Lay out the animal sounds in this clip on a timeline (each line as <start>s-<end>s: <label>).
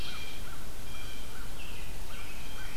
0.0s-1.3s: Blue Jay (Cyanocitta cristata)
0.0s-2.8s: American Crow (Corvus brachyrhynchos)
1.4s-2.8s: American Robin (Turdus migratorius)